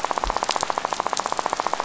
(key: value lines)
label: biophony, rattle
recorder: SoundTrap 500